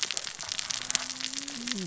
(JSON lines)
{"label": "biophony, cascading saw", "recorder": "SoundTrap 600 or HydroMoth"}